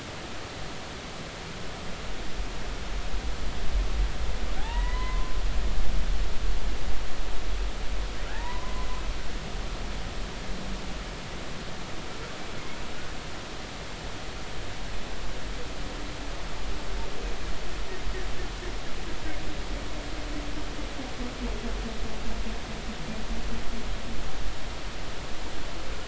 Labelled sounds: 4.6	5.3	humpback whale, 0.80 to 2.1 kHz
8.2	8.9	humpback whale, 0.80 to 2.0 kHz

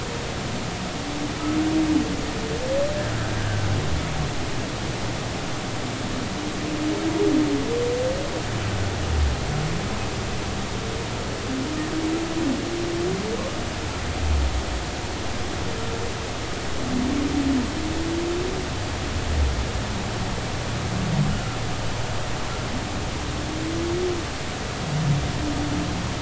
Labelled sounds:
3.3	3.7	humpback whale, 1.5 to 1.7 kHz
21.3	21.6	humpback whale, 1.3 to 1.5 kHz

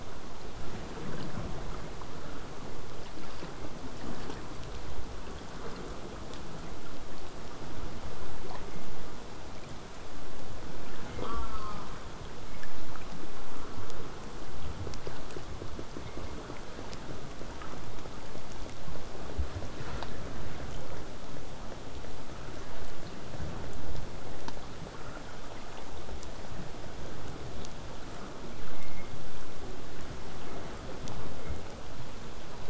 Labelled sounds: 11.2	11.8	killer whale, southern resident, J pod, call S04, 0.12 to 5.4 kHz

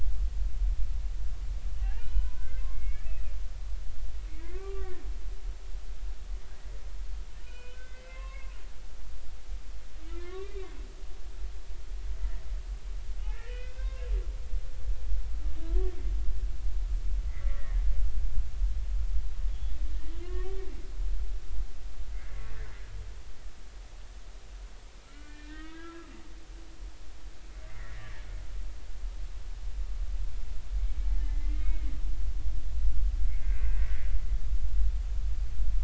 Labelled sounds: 1.8	3.3	humpback whale, 0.80 to 3.0 kHz
4.4	5.0	humpback whale, 0.93 to 2.4 kHz
7.4	8.5	humpback whale, 0.99 to 3.1 kHz
10.1	10.7	humpback whale, 0.99 to 2.5 kHz
13.3	14.1	humpback whale, 0.99 to 2.8 kHz
15.6	15.9	humpback whale, 0.96 to 1.2 kHz
17.3	17.6	humpback whale, 1.9 to 2.2 kHz
19.5	19.8	humpback whale, 3.2 to 3.5 kHz
20.2	20.6	humpback whale, 0.96 to 2.0 kHz
22.5	22.8	humpback whale, 1.5 to 2.1 kHz
25.0	26.1	humpback whale, 1.2 to 2.5 kHz
27.7	28.1	humpback whale, 1.6 to 2.2 kHz
31.1	31.9	humpback whale, 2.0 to 2.3 kHz
33.3	33.8	humpback whale, 1.5 to 2.7 kHz

